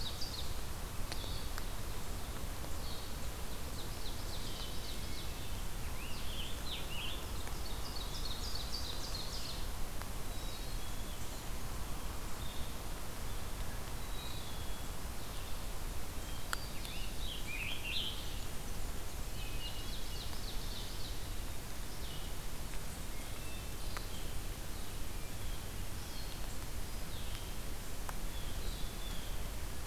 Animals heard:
Black-capped Chickadee (Poecile atricapillus), Blue-headed Vireo (Vireo solitarius), Ovenbird (Seiurus aurocapilla), Hermit Thrush (Catharus guttatus), Blue Jay (Cyanocitta cristata), Scarlet Tanager (Piranga olivacea)

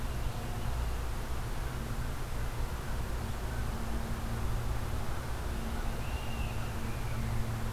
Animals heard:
unidentified call

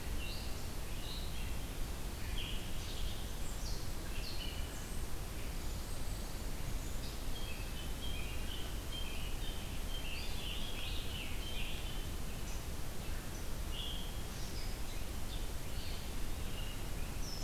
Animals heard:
Scarlet Tanager (Piranga olivacea), Pine Warbler (Setophaga pinus), Red-eyed Vireo (Vireo olivaceus)

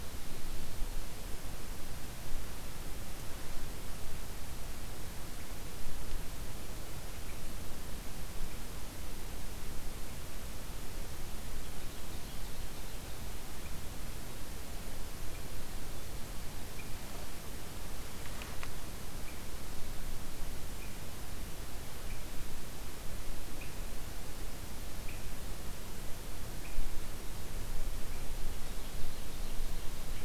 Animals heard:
Ovenbird (Seiurus aurocapilla), Swainson's Thrush (Catharus ustulatus)

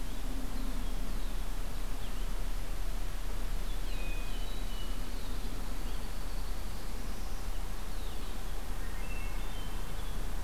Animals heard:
Blue-headed Vireo (Vireo solitarius), Red-winged Blackbird (Agelaius phoeniceus), Northern Parula (Setophaga americana), Hermit Thrush (Catharus guttatus)

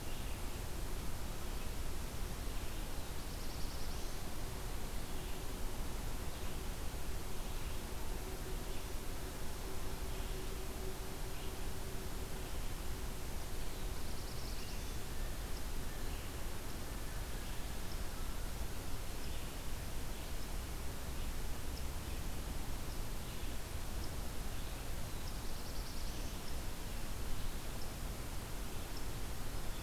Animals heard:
Black-throated Blue Warbler (Setophaga caerulescens)

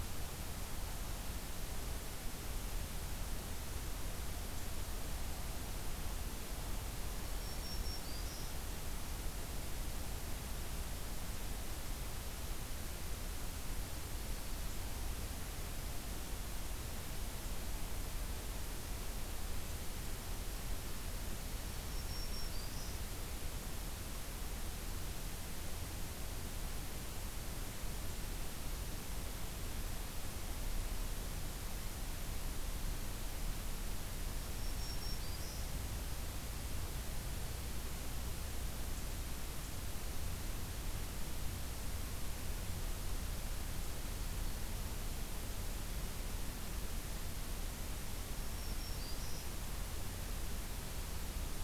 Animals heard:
Black-throated Green Warbler (Setophaga virens)

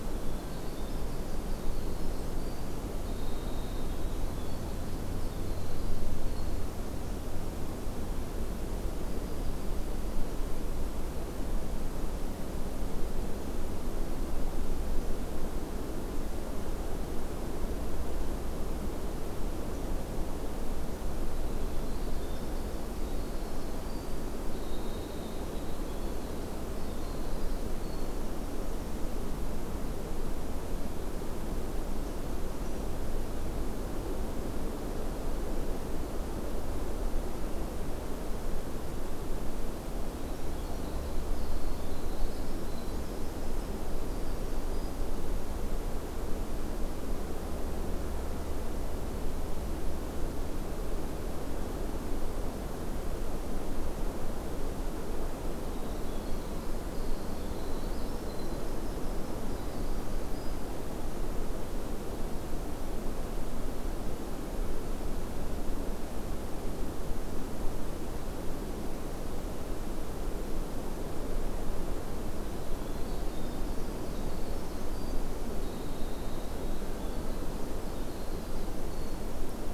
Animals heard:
Winter Wren (Troglodytes hiemalis), Yellow-rumped Warbler (Setophaga coronata)

